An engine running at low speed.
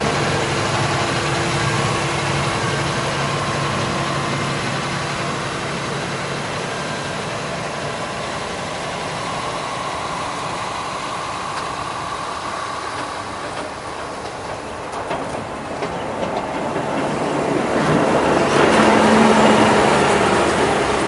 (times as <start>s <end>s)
0.0s 14.4s